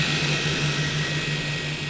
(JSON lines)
{"label": "anthrophony, boat engine", "recorder": "SoundTrap 500"}